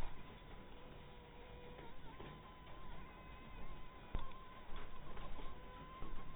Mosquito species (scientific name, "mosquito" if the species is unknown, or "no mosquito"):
mosquito